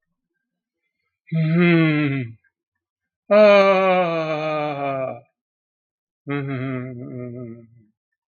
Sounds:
Sigh